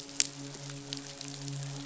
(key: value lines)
label: biophony, midshipman
recorder: SoundTrap 500